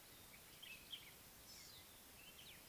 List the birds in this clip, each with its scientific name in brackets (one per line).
Common Bulbul (Pycnonotus barbatus)
Collared Sunbird (Hedydipna collaris)